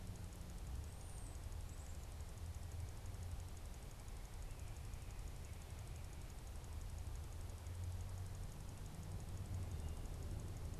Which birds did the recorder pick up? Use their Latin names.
unidentified bird